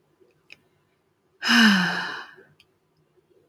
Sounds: Sigh